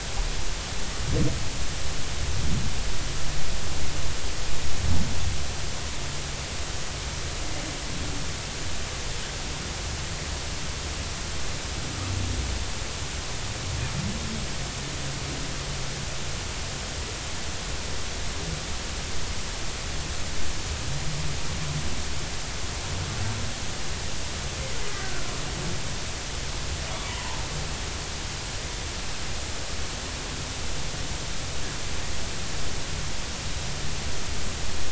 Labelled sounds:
24.9	25.3	humpback whale, 1.3 to 1.7 kHz
27.1	27.4	humpback whale, 0.80 to 1.1 kHz

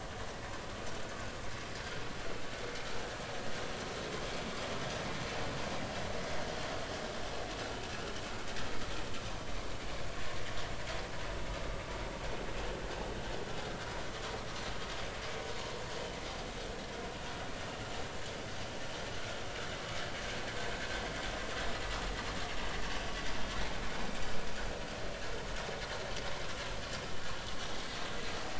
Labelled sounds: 5.8	6.0	vessel noise, 2.6 to 2.9 kHz

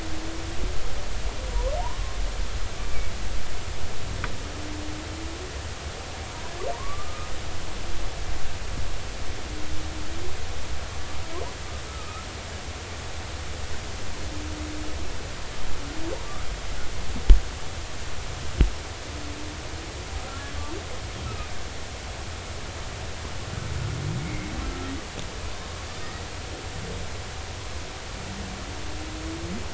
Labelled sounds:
1.8	2.1	humpback whale, 0.80 to 1.2 kHz
6.7	7.3	humpback whale, 0.86 to 1.3 kHz
11.9	12.3	humpback whale, 1.2 to 1.4 kHz
24.3	24.5	humpback whale, 2.0 to 2.2 kHz

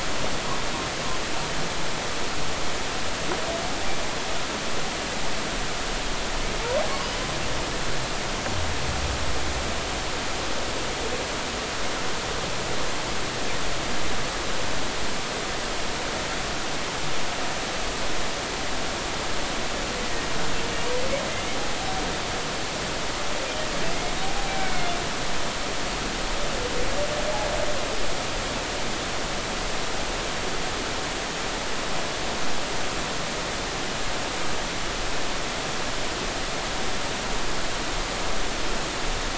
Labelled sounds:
20.0	20.3	humpback whale, 1.8 to 2.0 kHz
24.5	24.9	humpback whale, 2.1 to 2.4 kHz

